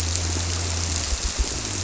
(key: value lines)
label: biophony
recorder: SoundTrap 300